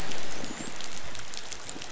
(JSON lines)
{"label": "biophony, dolphin", "recorder": "SoundTrap 500"}